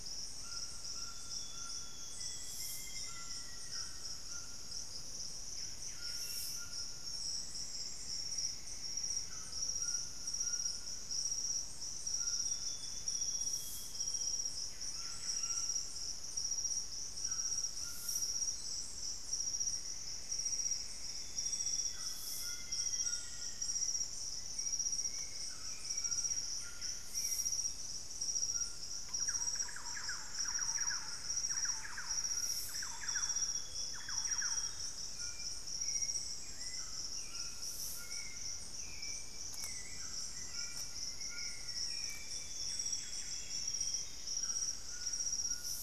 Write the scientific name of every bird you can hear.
Platyrinchus coronatus, Ramphastos tucanus, Cyanoloxia rothschildii, Formicarius analis, Cantorchilus leucotis, unidentified bird, Myrmelastes hyperythrus, Turdus hauxwelli, Campylorhynchus turdinus